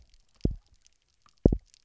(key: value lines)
label: biophony, double pulse
recorder: SoundTrap 300